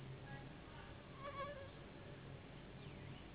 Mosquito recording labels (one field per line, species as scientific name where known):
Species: Anopheles gambiae s.s.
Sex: female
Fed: unfed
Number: one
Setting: insect culture